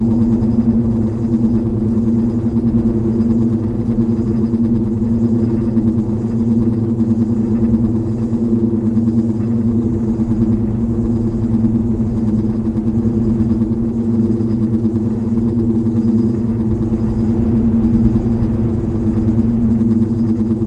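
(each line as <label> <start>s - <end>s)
A low, humming vibration is heard. 0.0s - 20.7s
The wind blows steadily. 0.0s - 20.7s
Wind blowing around a pole causes it to vibrate and produce a resonant sound. 0.0s - 20.7s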